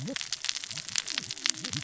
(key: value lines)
label: biophony, cascading saw
recorder: SoundTrap 600 or HydroMoth